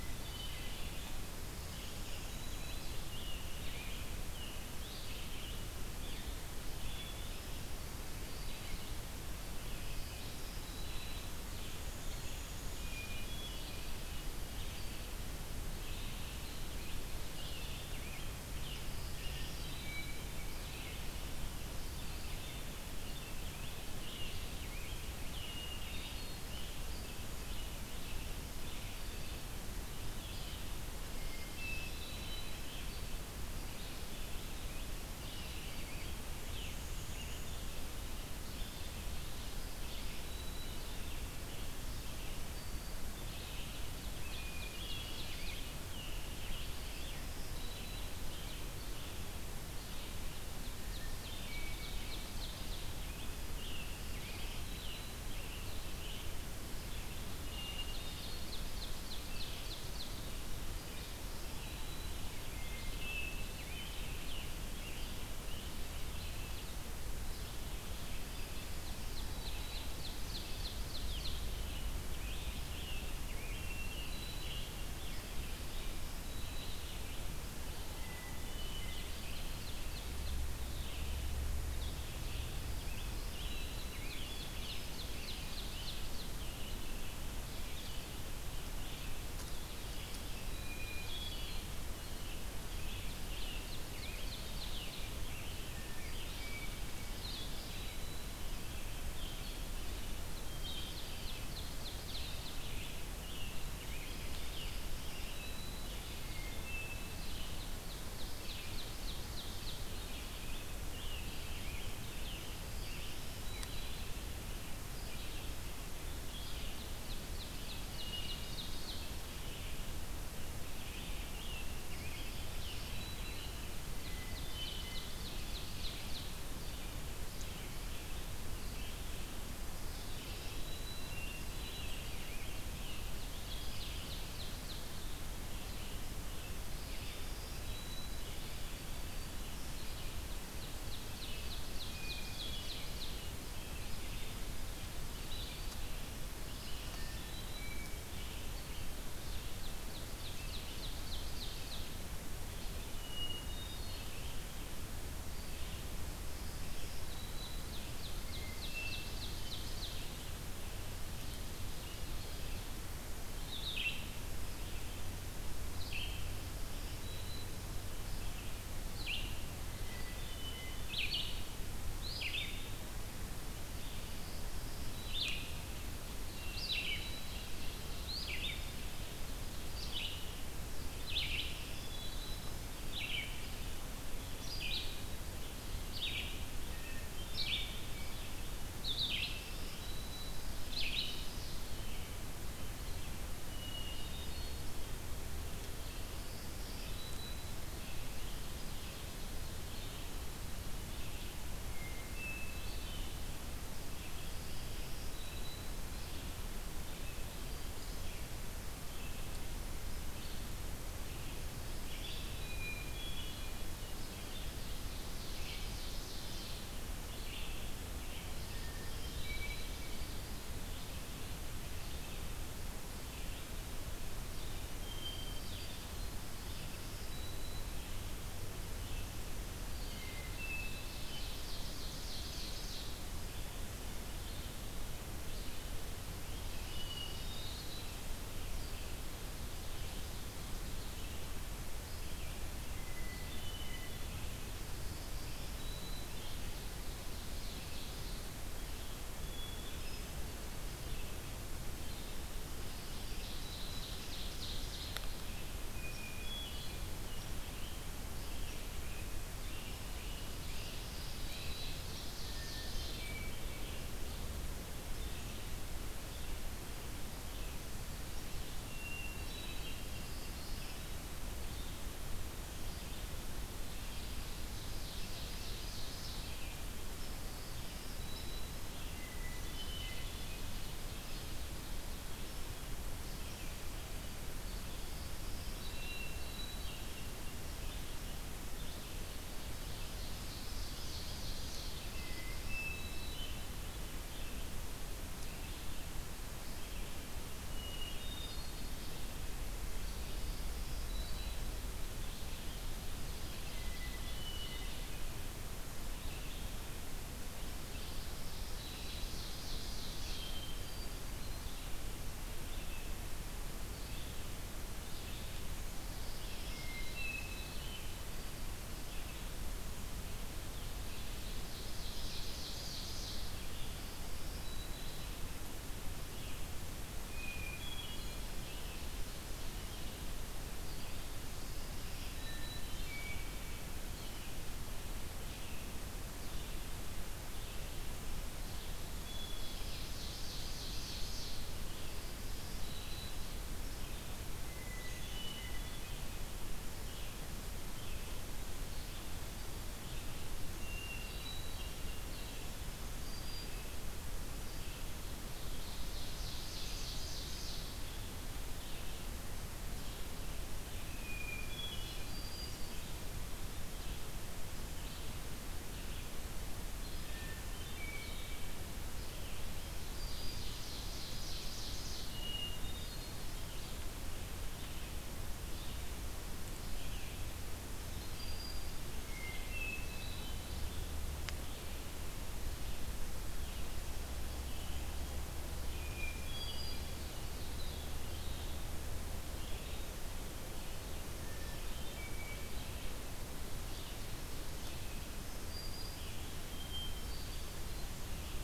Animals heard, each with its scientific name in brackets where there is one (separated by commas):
Blue-headed Vireo (Vireo solitarius), Black-throated Green Warbler (Setophaga virens), Red-eyed Vireo (Vireo olivaceus), Great Crested Flycatcher (Myiarchus crinitus), Hermit Thrush (Catharus guttatus), Ovenbird (Seiurus aurocapilla), Rose-breasted Grosbeak (Pheucticus ludovicianus), Scarlet Tanager (Piranga olivacea)